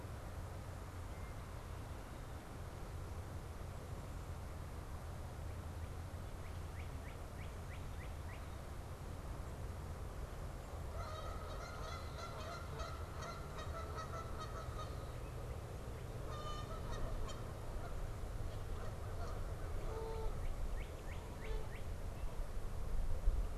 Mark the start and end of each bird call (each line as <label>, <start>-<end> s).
Northern Cardinal (Cardinalis cardinalis), 5.2-8.6 s
Canada Goose (Branta canadensis), 10.6-23.6 s
American Crow (Corvus brachyrhynchos), 18.6-20.3 s
Northern Cardinal (Cardinalis cardinalis), 19.6-22.2 s